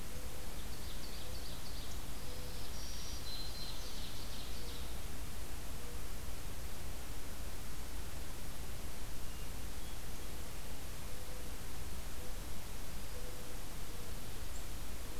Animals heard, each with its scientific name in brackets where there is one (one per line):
Mourning Dove (Zenaida macroura)
Hermit Thrush (Catharus guttatus)
Ovenbird (Seiurus aurocapilla)
Black-throated Green Warbler (Setophaga virens)